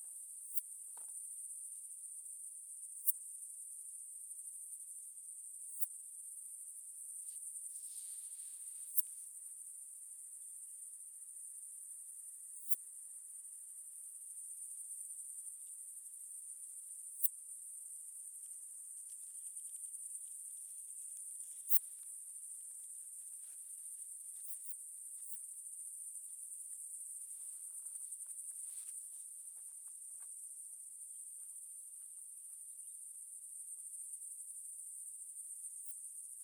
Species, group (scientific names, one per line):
Poecilimon affinis
Orthoptera